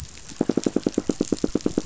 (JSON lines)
{"label": "biophony, knock", "recorder": "SoundTrap 500"}